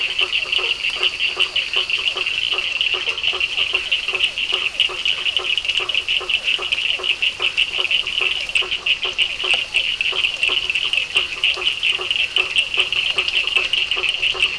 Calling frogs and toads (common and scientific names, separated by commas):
blacksmith tree frog (Boana faber), Physalaemus cuvieri, Cochran's lime tree frog (Sphaenorhynchus surdus)